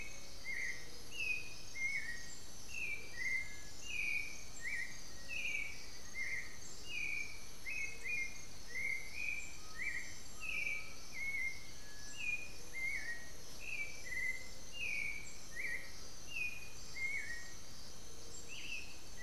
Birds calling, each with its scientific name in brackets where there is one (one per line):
Black-billed Thrush (Turdus ignobilis)
Black-faced Antthrush (Formicarius analis)
Undulated Tinamou (Crypturellus undulatus)